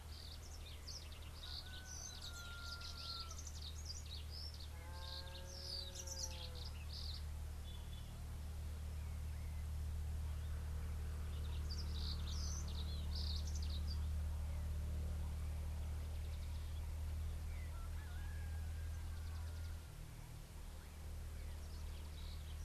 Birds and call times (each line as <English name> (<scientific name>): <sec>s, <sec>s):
Red-fronted Barbet (Tricholaema diademata): 2.4s
Brimstone Canary (Crithagra sulphurata): 3.1s, 12.2s